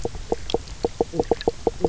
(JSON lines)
{"label": "biophony, knock croak", "recorder": "SoundTrap 300"}